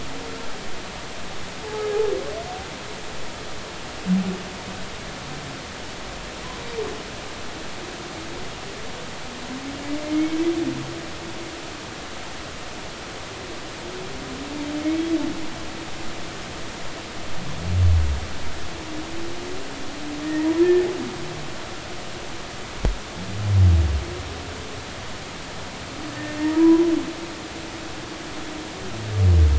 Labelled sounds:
10.0	10.4	humpback whale, 2.1 to 2.3 kHz
14.8	15.0	humpback whale, 2.1 to 2.3 kHz
20.6	20.9	humpback whale, 1.7 to 1.9 kHz
26.1	26.8	humpback whale, 0.90 to 1.9 kHz

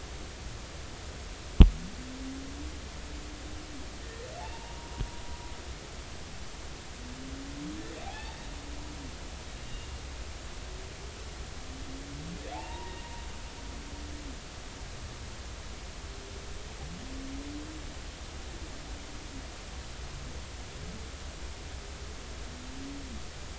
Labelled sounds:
4.0	4.3	humpback whale, 1.8 to 2.0 kHz
5.4	6.0	humpback whale, 0.80 to 1.0 kHz
8.0	8.4	humpback whale, 0.80 to 3.7 kHz
9.5	9.9	humpback whale, 2.7 to 2.9 kHz
12.5	13.0	humpback whale, 0.80 to 2.9 kHz

